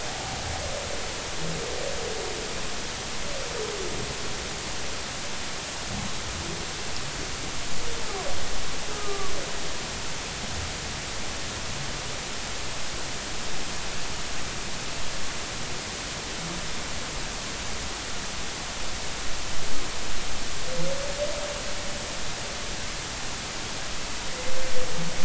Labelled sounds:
8.9	9.3	humpback whale, 1.0 to 1.4 kHz

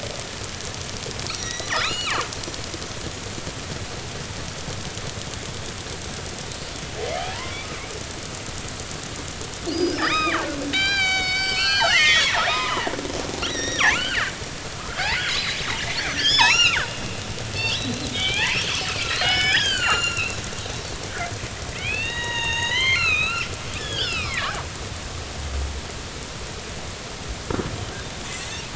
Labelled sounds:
1.3	2.2	killer whale, northern resident, G clan, 0.83 to 5.9 kHz
9.7	12.9	killer whale, northern resident, G clan, 0.80 to 7.0 kHz
13.4	14.3	killer whale, northern resident, G clan, 1.1 to 5.9 kHz
14.8	15.6	killer whale, northern resident, G clan, 1.1 to 4.3 kHz
16.1	16.8	killer whale, northern resident, G clan, 0.80 to 7.1 kHz
17.7	20.4	killer whale, northern resident, G clan, 0.80 to 7.1 kHz
21.7	23.5	killer whale, northern resident, G clan, 0.86 to 6.8 kHz
23.8	24.5	killer whale, northern resident, G clan, 1.0 to 5.4 kHz

